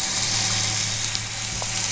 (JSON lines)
{"label": "anthrophony, boat engine", "recorder": "SoundTrap 500"}